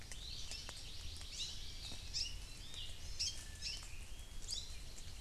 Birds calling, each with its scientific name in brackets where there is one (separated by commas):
Hawaii Creeper (Loxops mana), Hawaii Amakihi (Chlorodrepanis virens)